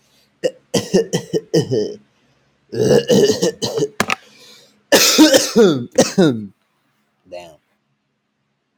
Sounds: Cough